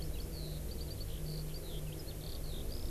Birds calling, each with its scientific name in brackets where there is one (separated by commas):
Eurasian Skylark (Alauda arvensis)